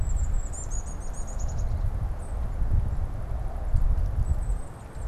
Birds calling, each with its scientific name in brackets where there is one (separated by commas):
Golden-crowned Kinglet (Regulus satrapa)